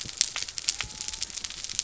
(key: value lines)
label: biophony
recorder: SoundTrap 300